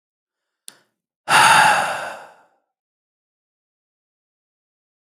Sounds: Sigh